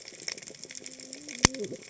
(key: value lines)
label: biophony, cascading saw
recorder: HydroMoth